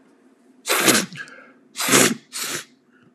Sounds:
Sniff